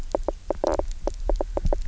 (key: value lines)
label: biophony, knock croak
recorder: SoundTrap 300